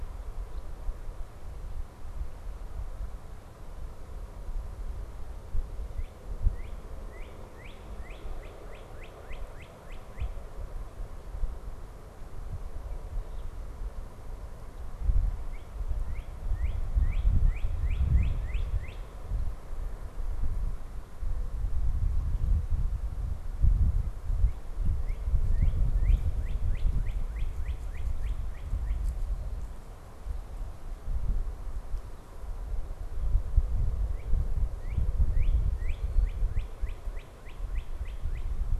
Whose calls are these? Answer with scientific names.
Cardinalis cardinalis